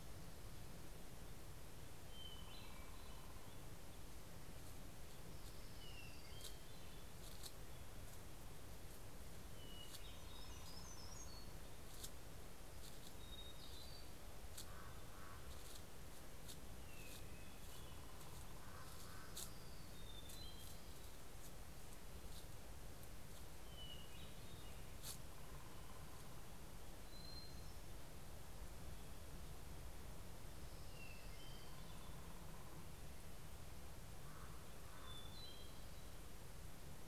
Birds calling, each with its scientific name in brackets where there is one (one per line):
Hermit Warbler (Setophaga occidentalis)
Common Raven (Corvus corax)
Hermit Thrush (Catharus guttatus)
Orange-crowned Warbler (Leiothlypis celata)